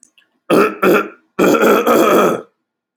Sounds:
Throat clearing